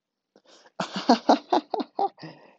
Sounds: Laughter